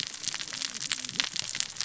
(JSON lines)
{"label": "biophony, cascading saw", "recorder": "SoundTrap 600 or HydroMoth"}